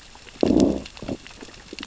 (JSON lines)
{"label": "biophony, growl", "recorder": "SoundTrap 600 or HydroMoth"}